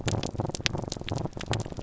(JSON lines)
{"label": "biophony", "recorder": "SoundTrap 300"}